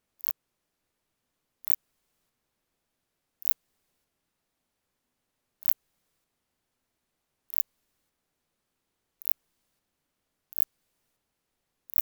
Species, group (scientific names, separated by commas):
Phaneroptera nana, Orthoptera